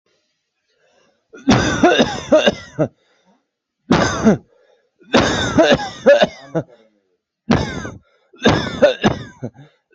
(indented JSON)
{
  "expert_labels": [
    {
      "quality": "ok",
      "cough_type": "unknown",
      "dyspnea": false,
      "wheezing": false,
      "stridor": false,
      "choking": false,
      "congestion": false,
      "nothing": true,
      "diagnosis": "COVID-19",
      "severity": "mild"
    }
  ],
  "age": 18,
  "gender": "male",
  "respiratory_condition": true,
  "fever_muscle_pain": false,
  "status": "COVID-19"
}